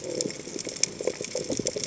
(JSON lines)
{"label": "biophony", "recorder": "HydroMoth"}